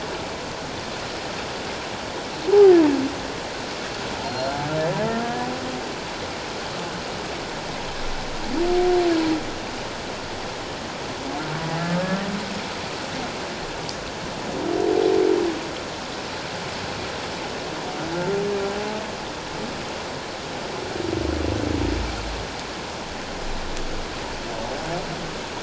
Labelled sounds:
4.3	4.6	humpback whale, 4.1 to 4.3 kHz

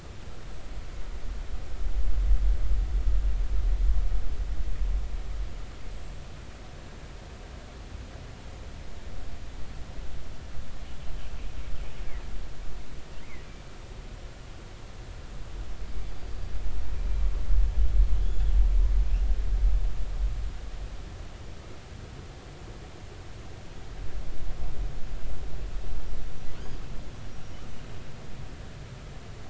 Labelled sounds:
5.9	6.2	killer whale, northern resident, 7.4 to 7.7 kHz
18.2	18.5	killer whale, northern resident, G clan, 3.2 to 7.0 kHz
27.3	27.6	killer whale, northern resident, 5.6 to 5.8 kHz

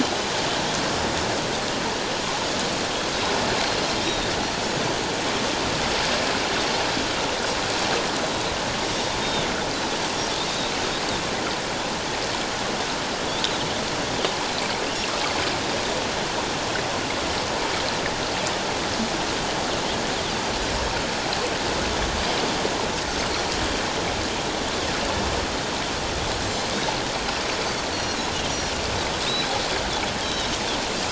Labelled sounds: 4.0	4.3	Pacific white-sided dolphin, 3.5 to 3.9 kHz
9.2	9.5	Pacific white-sided dolphin, 3.4 to 3.8 kHz
27.9	28.2	Pacific white-sided dolphin, 2.8 to 4.5 kHz
29.2	29.5	Pacific white-sided dolphin, 3.6 to 4.0 kHz
30.2	30.5	Pacific white-sided dolphin, 2.9 to 4.0 kHz

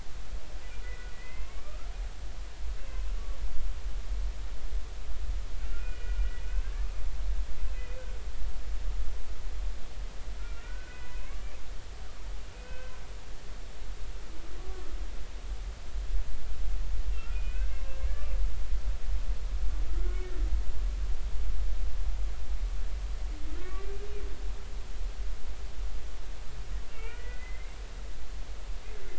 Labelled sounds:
0.8	1.9	humpback whale, 1.2 to 2.8 kHz
5.6	6.9	humpback whale, 1.3 to 2.5 kHz
7.7	8.0	humpback whale, 2.4 to 2.6 kHz
10.4	11.2	humpback whale, 1.3 to 2.7 kHz
12.5	12.9	humpback whale, 1.5 to 2.6 kHz
17.2	17.9	humpback whale, 1.2 to 2.7 kHz
19.9	20.2	humpback whale, 1.2 to 1.5 kHz
23.6	24.1	humpback whale, 1.1 to 2.5 kHz
26.9	27.8	humpback whale, 1.2 to 3.0 kHz

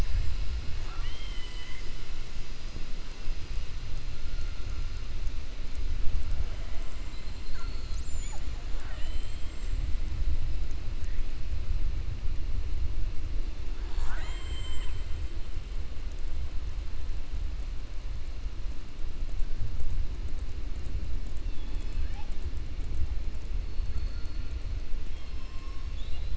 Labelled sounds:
0.7	1.9	killer whale, 0.75 to 4.1 kHz
8.6	9.5	killer whale, 0.54 to 4.2 kHz
13.7	15.0	killer whale, 0.68 to 7.9 kHz
25.0	26.3	killer whale, 2.4 to 5.5 kHz

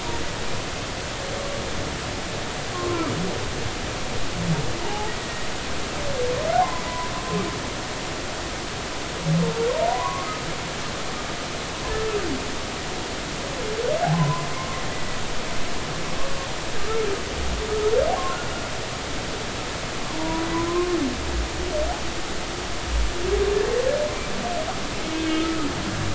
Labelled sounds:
2.7	3.1	humpback whale, 0.93 to 1.2 kHz
4.8	5.5	humpback whale, 0.80 to 2.0 kHz
6.5	7.1	humpback whale, 0.80 to 1.1 kHz
9.8	10.3	humpback whale, 0.90 to 1.2 kHz
14.1	14.5	humpback whale, 0.96 to 1.1 kHz
20.2	21.0	humpback whale, 0.90 to 1.1 kHz
25.2	25.6	humpback whale, 1.2 to 3.3 kHz

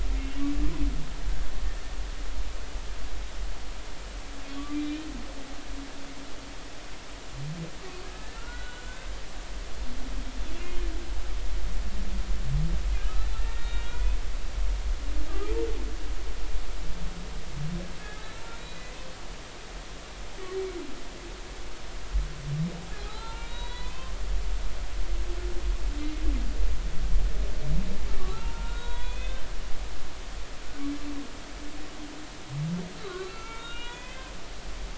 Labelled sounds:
0.2	0.5	humpback whale, 2.7 to 2.8 kHz
4.4	4.7	humpback whale, 3.3 to 3.5 kHz
8.0	9.1	humpback whale, 1.3 to 4.0 kHz
10.5	10.8	humpback whale, 2.7 to 2.8 kHz
13.1	14.0	humpback whale, 1.3 to 4.0 kHz
15.3	15.5	humpback whale, 1.1 to 1.3 kHz
18.0	18.9	humpback whale, 1.6 to 4.0 kHz
23.0	24.1	humpback whale, 0.80 to 4.1 kHz
28.3	29.4	humpback whale, 0.83 to 3.9 kHz
33.0	34.3	humpback whale, 0.86 to 3.9 kHz
34.6	34.9	humpback whale, 2.8 to 2.9 kHz

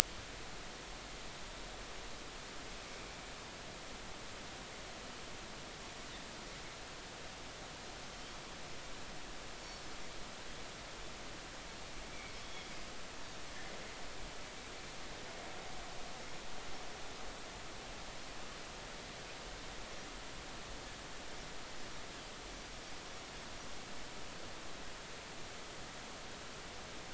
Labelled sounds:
12.1	12.7	Pacific white-sided dolphin, 2.1 to 3.5 kHz

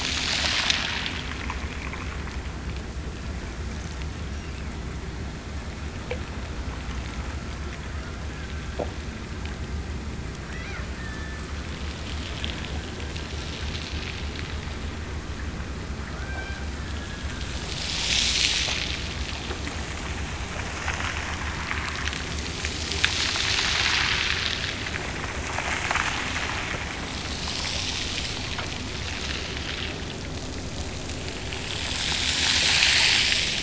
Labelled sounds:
4.3	5.3	killer whale, Bigg's (transient), Gulf of Alaska transient, 1.4 to 2.9 kHz
7.9	8.8	killer whale, Bigg's (transient), Gulf of Alaska transient, 1.2 to 1.8 kHz
10.4	11.5	killer whale, Bigg's (transient), Gulf of Alaska transient, 0.91 to 2.2 kHz
16.2	17.6	killer whale, Bigg's (transient), Gulf of Alaska transient, 1.3 to 3.3 kHz

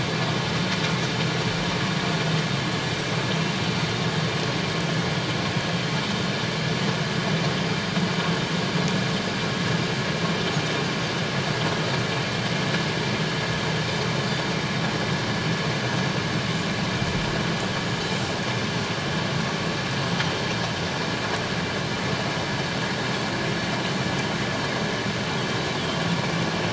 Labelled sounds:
17.8	18.1	Pacific white-sided dolphin, 6.6 to 7.0 kHz

